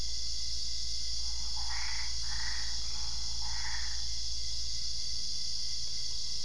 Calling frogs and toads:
Boana albopunctata (Hylidae)
Cerrado, midnight

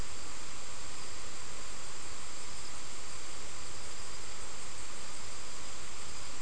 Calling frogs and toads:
none
Brazil, 6pm

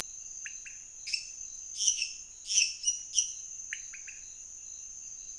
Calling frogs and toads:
Leptodactylus podicipinus (Leptodactylidae), Dendropsophus minutus (Hylidae)
Brazil, 11:30pm

